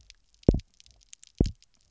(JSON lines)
{"label": "biophony, double pulse", "recorder": "SoundTrap 300"}